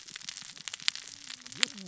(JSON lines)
{"label": "biophony, cascading saw", "recorder": "SoundTrap 600 or HydroMoth"}